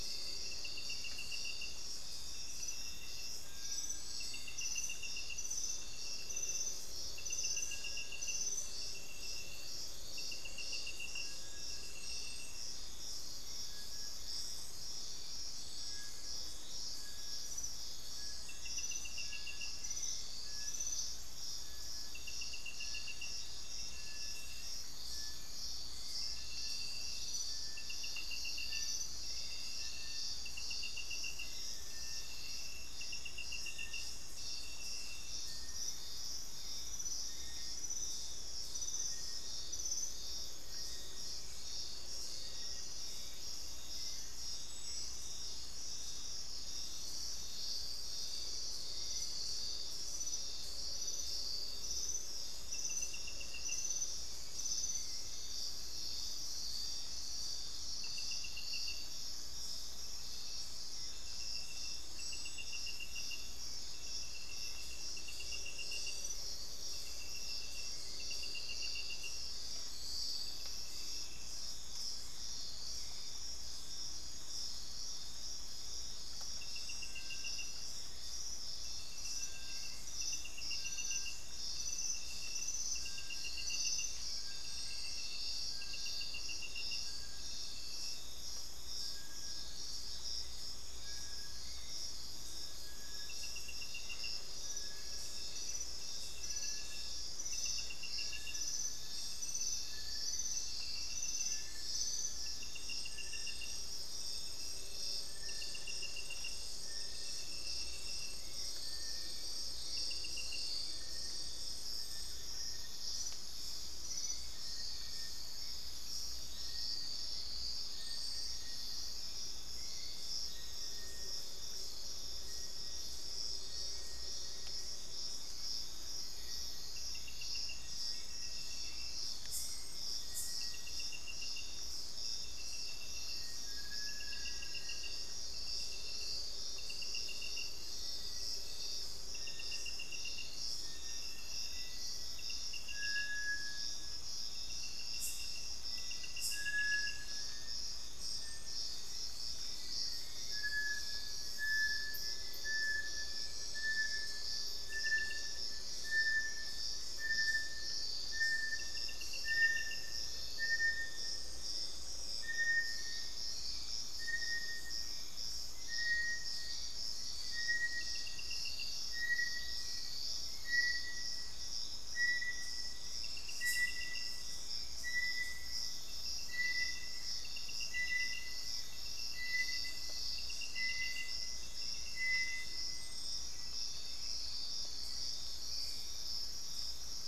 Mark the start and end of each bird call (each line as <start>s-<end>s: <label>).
0.0s-42.9s: Little Tinamou (Crypturellus soui)
0.0s-130.4s: Hauxwell's Thrush (Turdus hauxwelli)
76.8s-183.7s: Little Tinamou (Crypturellus soui)
133.2s-135.5s: Black-faced Antthrush (Formicarius analis)
146.5s-174.9s: Hauxwell's Thrush (Turdus hauxwelli)
148.9s-150.8s: Black-faced Antthrush (Formicarius analis)
165.5s-187.2s: Thrush-like Wren (Campylorhynchus turdinus)
183.9s-187.3s: Hauxwell's Thrush (Turdus hauxwelli)